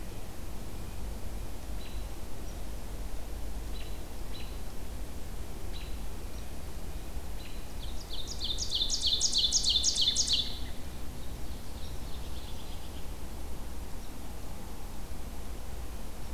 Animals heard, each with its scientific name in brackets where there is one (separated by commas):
Ovenbird (Seiurus aurocapilla), American Robin (Turdus migratorius)